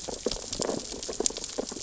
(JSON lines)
{"label": "biophony, sea urchins (Echinidae)", "recorder": "SoundTrap 600 or HydroMoth"}